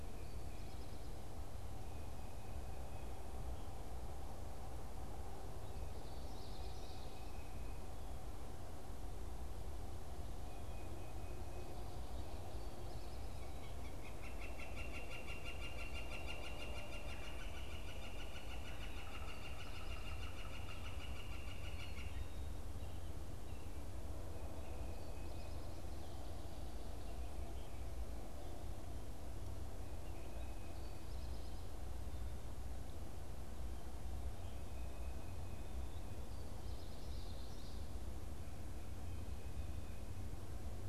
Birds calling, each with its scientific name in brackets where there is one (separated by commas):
Northern Flicker (Colaptes auratus), Common Yellowthroat (Geothlypis trichas), Tufted Titmouse (Baeolophus bicolor)